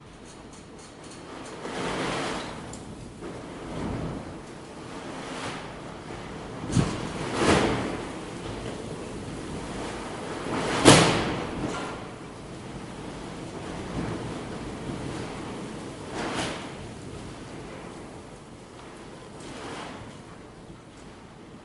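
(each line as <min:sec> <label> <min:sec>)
0:00.0 White noise in the background. 0:21.6
0:01.5 Wind blowing faintly. 0:02.6
0:03.2 Wind blowing faintly. 0:04.2
0:04.8 Wind blowing faintly. 0:05.8
0:06.6 Wind blowing faintly. 0:08.2
0:10.5 A loud, sharp wind moves items. 0:12.2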